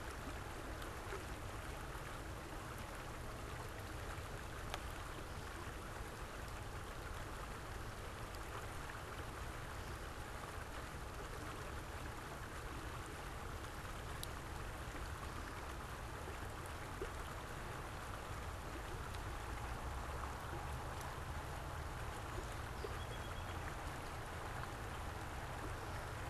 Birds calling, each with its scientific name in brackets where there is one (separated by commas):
Song Sparrow (Melospiza melodia)